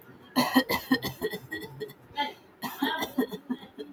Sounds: Cough